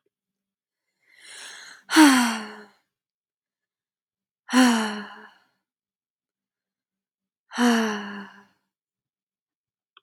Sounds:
Sigh